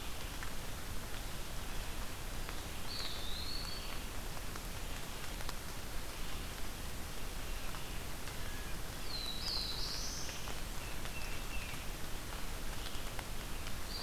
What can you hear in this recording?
Red-eyed Vireo, Eastern Wood-Pewee, Black-throated Blue Warbler, Tufted Titmouse